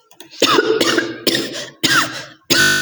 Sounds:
Cough